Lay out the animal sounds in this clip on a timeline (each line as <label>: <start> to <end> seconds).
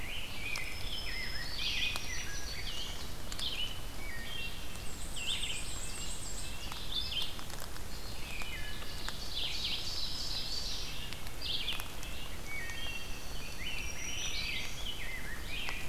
Rose-breasted Grosbeak (Pheucticus ludovicianus): 0.0 to 2.9 seconds
Black-throated Green Warbler (Setophaga virens): 0.3 to 3.0 seconds
Ovenbird (Seiurus aurocapilla): 1.0 to 3.1 seconds
Red-eyed Vireo (Vireo olivaceus): 1.5 to 15.9 seconds
Wood Thrush (Hylocichla mustelina): 4.0 to 4.6 seconds
Black-and-white Warbler (Mniotilta varia): 4.5 to 6.6 seconds
Ovenbird (Seiurus aurocapilla): 4.6 to 7.0 seconds
Red-breasted Nuthatch (Sitta canadensis): 5.6 to 7.2 seconds
Wood Thrush (Hylocichla mustelina): 8.2 to 9.0 seconds
Ovenbird (Seiurus aurocapilla): 8.6 to 11.1 seconds
Black-throated Green Warbler (Setophaga virens): 9.5 to 11.1 seconds
Red-breasted Nuthatch (Sitta canadensis): 10.2 to 13.2 seconds
Wood Thrush (Hylocichla mustelina): 12.2 to 13.2 seconds
Dark-eyed Junco (Junco hyemalis): 12.3 to 13.8 seconds
Rose-breasted Grosbeak (Pheucticus ludovicianus): 13.4 to 15.9 seconds
Black-throated Green Warbler (Setophaga virens): 13.5 to 14.9 seconds